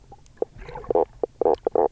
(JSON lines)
{"label": "biophony, knock croak", "recorder": "SoundTrap 300"}